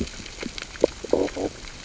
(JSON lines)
{"label": "biophony, stridulation", "recorder": "SoundTrap 600 or HydroMoth"}